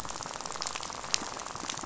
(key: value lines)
label: biophony, rattle
recorder: SoundTrap 500